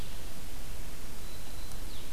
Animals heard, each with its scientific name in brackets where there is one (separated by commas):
Black-throated Green Warbler (Setophaga virens), Blue-headed Vireo (Vireo solitarius)